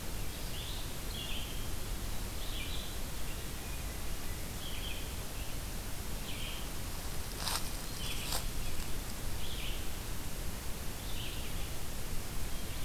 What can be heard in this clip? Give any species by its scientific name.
Vireo olivaceus